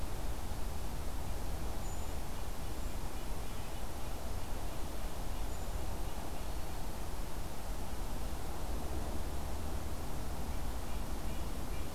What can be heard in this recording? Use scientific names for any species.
Sitta canadensis, Certhia americana, Setophaga virens